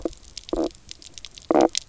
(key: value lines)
label: biophony, knock croak
recorder: SoundTrap 300